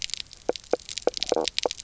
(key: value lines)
label: biophony, knock croak
recorder: SoundTrap 300